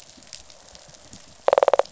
{"label": "biophony, rattle response", "recorder": "SoundTrap 500"}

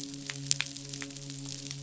{"label": "biophony, midshipman", "recorder": "SoundTrap 500"}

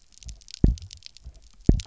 {"label": "biophony, double pulse", "recorder": "SoundTrap 300"}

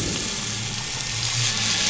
{"label": "anthrophony, boat engine", "recorder": "SoundTrap 500"}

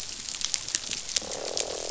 {"label": "biophony, croak", "recorder": "SoundTrap 500"}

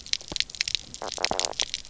{"label": "biophony, knock croak", "recorder": "SoundTrap 300"}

